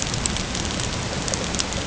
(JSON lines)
{"label": "ambient", "recorder": "HydroMoth"}